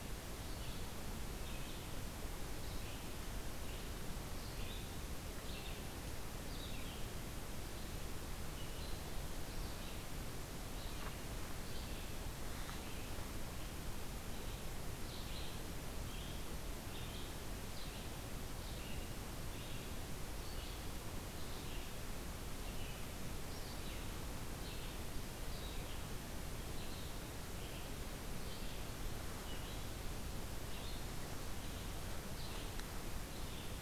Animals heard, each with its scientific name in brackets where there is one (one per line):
Red-eyed Vireo (Vireo olivaceus)